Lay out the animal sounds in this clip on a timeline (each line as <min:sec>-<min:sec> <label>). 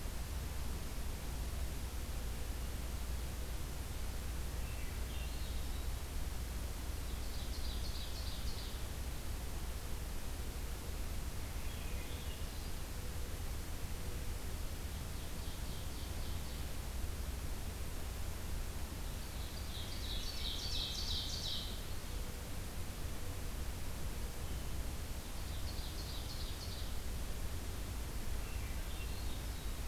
0:04.3-0:05.9 Swainson's Thrush (Catharus ustulatus)
0:06.8-0:08.8 Ovenbird (Seiurus aurocapilla)
0:11.3-0:12.9 Swainson's Thrush (Catharus ustulatus)
0:14.8-0:16.7 Ovenbird (Seiurus aurocapilla)
0:19.1-0:21.8 Ovenbird (Seiurus aurocapilla)
0:19.5-0:21.2 Swainson's Thrush (Catharus ustulatus)
0:22.1-0:23.5 Mourning Dove (Zenaida macroura)
0:25.2-0:27.0 Ovenbird (Seiurus aurocapilla)
0:28.1-0:29.8 Swainson's Thrush (Catharus ustulatus)